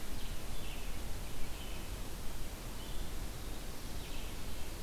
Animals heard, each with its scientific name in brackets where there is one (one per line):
Red-eyed Vireo (Vireo olivaceus)